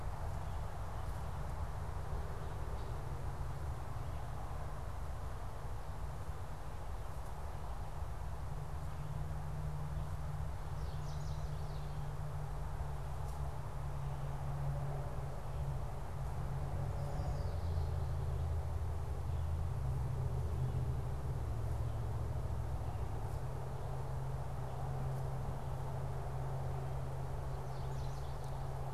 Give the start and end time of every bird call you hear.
10.4s-12.1s: Chestnut-sided Warbler (Setophaga pensylvanica)
27.2s-28.9s: Chestnut-sided Warbler (Setophaga pensylvanica)

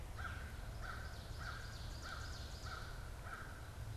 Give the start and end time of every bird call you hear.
0.0s-0.5s: Northern Cardinal (Cardinalis cardinalis)
0.0s-4.0s: American Crow (Corvus brachyrhynchos)
0.8s-3.2s: Ovenbird (Seiurus aurocapilla)

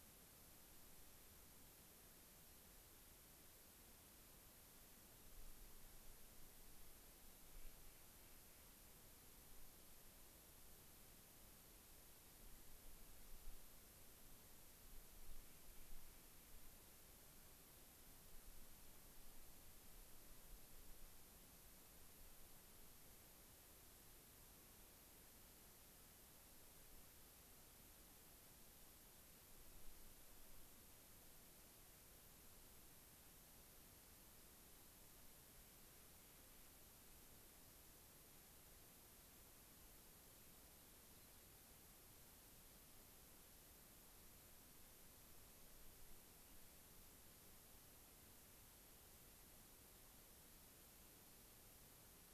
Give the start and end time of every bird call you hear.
7.5s-9.0s: Clark's Nutcracker (Nucifraga columbiana)
15.4s-16.5s: Clark's Nutcracker (Nucifraga columbiana)
41.1s-41.4s: Dark-eyed Junco (Junco hyemalis)

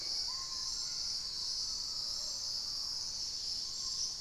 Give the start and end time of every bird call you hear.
0.0s-1.2s: Hauxwell's Thrush (Turdus hauxwelli)
0.0s-4.2s: Screaming Piha (Lipaugus vociferans)
3.4s-4.2s: Dusky-capped Greenlet (Pachysylvia hypoxantha)

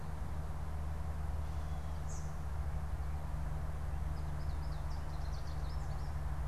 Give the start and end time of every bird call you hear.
0.0s-6.5s: American Goldfinch (Spinus tristis)
1.9s-2.5s: Eastern Kingbird (Tyrannus tyrannus)

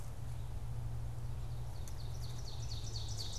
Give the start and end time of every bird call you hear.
1.6s-3.4s: Ovenbird (Seiurus aurocapilla)

